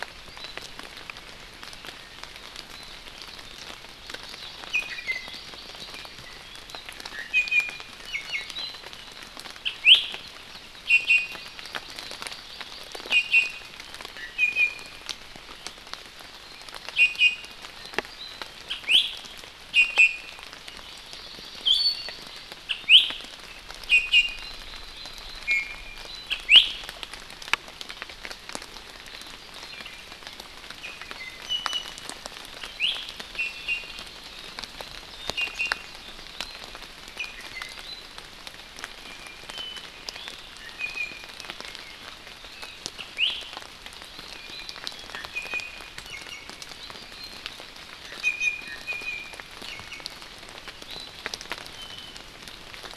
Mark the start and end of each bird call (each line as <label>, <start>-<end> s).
Hawaii Amakihi (Chlorodrepanis virens), 4.6-6.1 s
Iiwi (Drepanis coccinea), 4.7-5.4 s
Iiwi (Drepanis coccinea), 7.1-8.5 s
Iiwi (Drepanis coccinea), 9.6-10.1 s
Iiwi (Drepanis coccinea), 10.8-11.6 s
Hawaii Amakihi (Chlorodrepanis virens), 11.6-13.5 s
Iiwi (Drepanis coccinea), 13.1-13.7 s
Iiwi (Drepanis coccinea), 14.1-15.0 s
Iiwi (Drepanis coccinea), 16.9-17.6 s
Iiwi (Drepanis coccinea), 18.6-19.1 s
Iiwi (Drepanis coccinea), 19.7-20.4 s
Hawaii Amakihi (Chlorodrepanis virens), 20.6-22.4 s
Iiwi (Drepanis coccinea), 21.6-22.1 s
Iiwi (Drepanis coccinea), 22.6-23.1 s
Iiwi (Drepanis coccinea), 23.8-24.5 s
Hawaii Amakihi (Chlorodrepanis virens), 24.3-25.4 s
Iiwi (Drepanis coccinea), 25.4-26.7 s
Iiwi (Drepanis coccinea), 30.8-32.0 s
Iiwi (Drepanis coccinea), 32.6-33.0 s
Iiwi (Drepanis coccinea), 33.3-34.0 s
Iiwi (Drepanis coccinea), 35.3-35.9 s
Iiwi (Drepanis coccinea), 37.1-38.1 s
Iiwi (Drepanis coccinea), 40.5-41.3 s
Iiwi (Drepanis coccinea), 42.9-43.3 s
Iiwi (Drepanis coccinea), 44.3-46.6 s
Iiwi (Drepanis coccinea), 48.2-50.1 s
Iiwi (Drepanis coccinea), 51.7-52.1 s